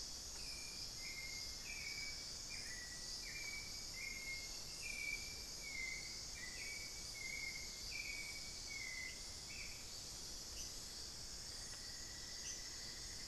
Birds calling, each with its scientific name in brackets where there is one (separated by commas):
unidentified bird, Hauxwell's Thrush (Turdus hauxwelli), Cinnamon-throated Woodcreeper (Dendrexetastes rufigula)